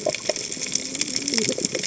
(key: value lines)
label: biophony, cascading saw
recorder: HydroMoth